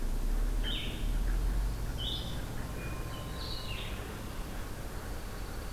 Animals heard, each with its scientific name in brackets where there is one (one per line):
Hermit Thrush (Catharus guttatus)
Blue-headed Vireo (Vireo solitarius)
Downy Woodpecker (Dryobates pubescens)